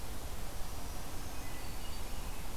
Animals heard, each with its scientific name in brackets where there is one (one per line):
Red-breasted Nuthatch (Sitta canadensis)
Black-throated Green Warbler (Setophaga virens)
Hermit Thrush (Catharus guttatus)